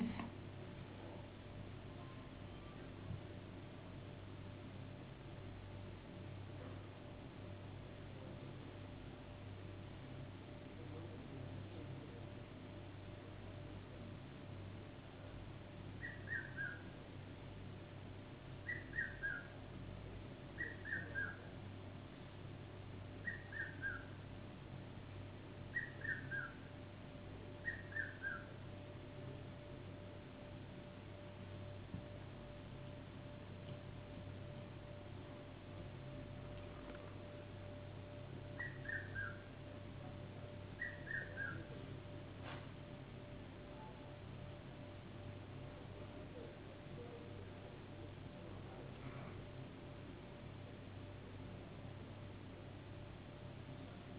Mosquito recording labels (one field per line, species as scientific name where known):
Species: no mosquito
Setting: insect culture